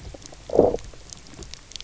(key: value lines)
label: biophony, low growl
recorder: SoundTrap 300